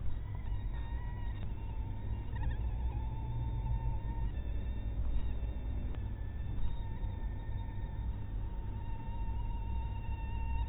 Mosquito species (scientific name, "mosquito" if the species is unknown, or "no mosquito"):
mosquito